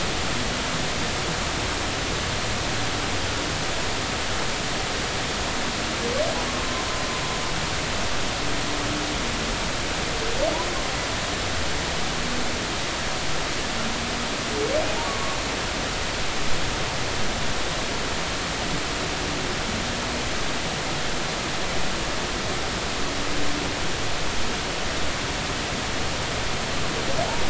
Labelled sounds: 6.5	6.8	humpback whale, 0.99 to 1.2 kHz
14.9	15.1	humpback whale, 0.80 to 0.99 kHz

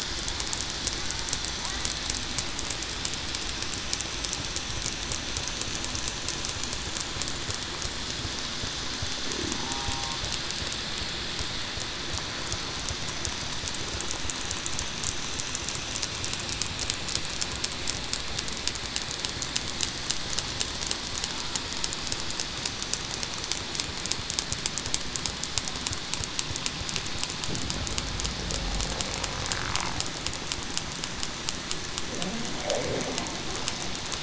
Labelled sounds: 9.6	10.1	killer whale, southern resident, 0.77 to 0.84 kHz

